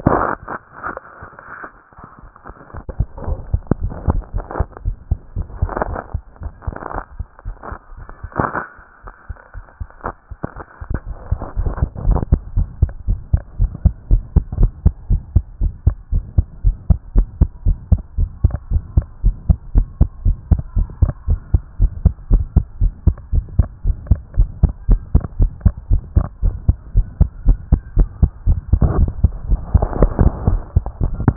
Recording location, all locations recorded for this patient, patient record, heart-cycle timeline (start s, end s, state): tricuspid valve (TV)
pulmonary valve (PV)+tricuspid valve (TV)+mitral valve (MV)
#Age: nan
#Sex: Female
#Height: nan
#Weight: nan
#Pregnancy status: True
#Murmur: Absent
#Murmur locations: nan
#Most audible location: nan
#Systolic murmur timing: nan
#Systolic murmur shape: nan
#Systolic murmur grading: nan
#Systolic murmur pitch: nan
#Systolic murmur quality: nan
#Diastolic murmur timing: nan
#Diastolic murmur shape: nan
#Diastolic murmur grading: nan
#Diastolic murmur pitch: nan
#Diastolic murmur quality: nan
#Outcome: Normal
#Campaign: 2014 screening campaign
0.00	13.08	unannotated
13.08	13.18	S1
13.18	13.32	systole
13.32	13.42	S2
13.42	13.60	diastole
13.60	13.70	S1
13.70	13.84	systole
13.84	13.94	S2
13.94	14.10	diastole
14.10	14.22	S1
14.22	14.34	systole
14.34	14.44	S2
14.44	14.58	diastole
14.58	14.72	S1
14.72	14.84	systole
14.84	14.94	S2
14.94	15.10	diastole
15.10	15.22	S1
15.22	15.34	systole
15.34	15.44	S2
15.44	15.62	diastole
15.62	15.72	S1
15.72	15.86	systole
15.86	15.96	S2
15.96	16.12	diastole
16.12	16.24	S1
16.24	16.36	systole
16.36	16.46	S2
16.46	16.64	diastole
16.64	16.76	S1
16.76	16.88	systole
16.88	16.98	S2
16.98	17.16	diastole
17.16	17.26	S1
17.26	17.40	systole
17.40	17.50	S2
17.50	17.66	diastole
17.66	17.78	S1
17.78	17.90	systole
17.90	18.00	S2
18.00	18.18	diastole
18.18	18.30	S1
18.30	18.42	systole
18.42	18.54	S2
18.54	18.72	diastole
18.72	18.82	S1
18.82	18.96	systole
18.96	19.06	S2
19.06	19.24	diastole
19.24	19.36	S1
19.36	19.48	systole
19.48	19.58	S2
19.58	19.74	diastole
19.74	19.86	S1
19.86	20.00	systole
20.00	20.08	S2
20.08	20.24	diastole
20.24	20.36	S1
20.36	20.50	systole
20.50	20.60	S2
20.60	20.76	diastole
20.76	20.88	S1
20.88	21.00	systole
21.00	21.12	S2
21.12	21.28	diastole
21.28	21.40	S1
21.40	21.52	systole
21.52	21.62	S2
21.62	21.80	diastole
21.80	21.92	S1
21.92	22.04	systole
22.04	22.14	S2
22.14	22.30	diastole
22.30	22.44	S1
22.44	22.56	systole
22.56	22.64	S2
22.64	22.80	diastole
22.80	22.92	S1
22.92	23.06	systole
23.06	23.16	S2
23.16	23.34	diastole
23.34	23.44	S1
23.44	23.58	systole
23.58	23.68	S2
23.68	23.86	diastole
23.86	23.96	S1
23.96	24.10	systole
24.10	24.20	S2
24.20	24.38	diastole
24.38	24.48	S1
24.48	24.62	systole
24.62	24.72	S2
24.72	24.88	diastole
24.88	25.00	S1
25.00	25.14	systole
25.14	25.24	S2
25.24	25.40	diastole
25.40	25.50	S1
25.50	25.64	systole
25.64	25.74	S2
25.74	25.90	diastole
25.90	26.02	S1
26.02	26.16	systole
26.16	26.26	S2
26.26	26.44	diastole
26.44	26.54	S1
26.54	26.68	systole
26.68	26.76	S2
26.76	26.94	diastole
26.94	27.06	S1
27.06	27.20	systole
27.20	27.30	S2
27.30	27.46	diastole
27.46	27.58	S1
27.58	27.70	systole
27.70	27.80	S2
27.80	27.96	diastole
27.96	28.08	S1
28.08	28.20	systole
28.20	28.32	S2
28.32	31.36	unannotated